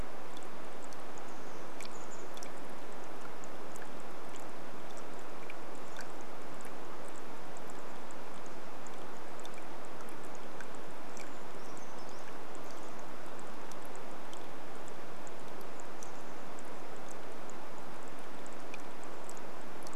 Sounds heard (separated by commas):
Brown Creeper song, rain, Chestnut-backed Chickadee call